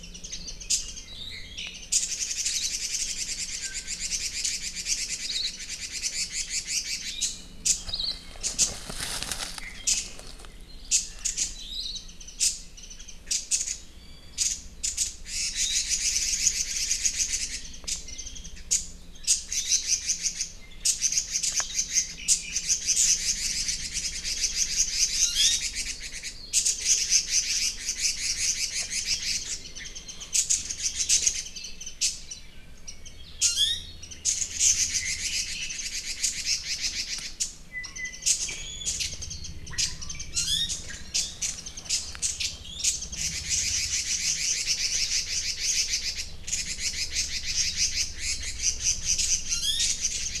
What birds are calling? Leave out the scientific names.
Warbling White-eye, Hawaii Akepa, Red-billed Leiothrix, Iiwi